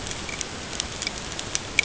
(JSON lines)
{"label": "ambient", "recorder": "HydroMoth"}